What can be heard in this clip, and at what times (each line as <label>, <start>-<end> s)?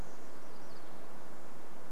MacGillivray's Warbler song, 0-2 s